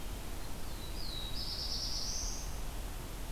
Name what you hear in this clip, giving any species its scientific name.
Setophaga caerulescens